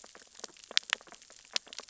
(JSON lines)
{"label": "biophony, sea urchins (Echinidae)", "recorder": "SoundTrap 600 or HydroMoth"}